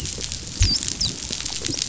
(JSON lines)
{"label": "biophony, dolphin", "recorder": "SoundTrap 500"}